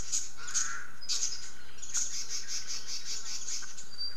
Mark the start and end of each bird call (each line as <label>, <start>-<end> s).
Red-billed Leiothrix (Leiothrix lutea), 0.0-4.0 s
Omao (Myadestes obscurus), 0.3-1.1 s